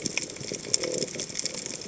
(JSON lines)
{"label": "biophony", "recorder": "HydroMoth"}